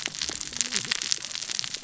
{"label": "biophony, cascading saw", "recorder": "SoundTrap 600 or HydroMoth"}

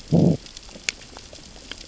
{"label": "biophony, growl", "recorder": "SoundTrap 600 or HydroMoth"}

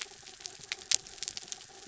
{"label": "anthrophony, mechanical", "recorder": "SoundTrap 300"}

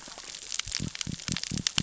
{"label": "biophony", "recorder": "SoundTrap 600 or HydroMoth"}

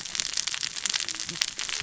{"label": "biophony, cascading saw", "recorder": "SoundTrap 600 or HydroMoth"}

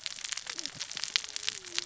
{"label": "biophony, cascading saw", "recorder": "SoundTrap 600 or HydroMoth"}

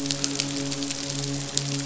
{"label": "biophony, midshipman", "recorder": "SoundTrap 500"}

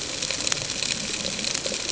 {"label": "ambient", "recorder": "HydroMoth"}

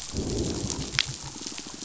{"label": "biophony, growl", "recorder": "SoundTrap 500"}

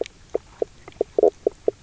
{"label": "biophony, knock croak", "recorder": "SoundTrap 300"}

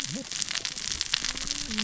{"label": "biophony, cascading saw", "recorder": "SoundTrap 600 or HydroMoth"}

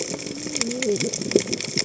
{"label": "biophony, cascading saw", "recorder": "HydroMoth"}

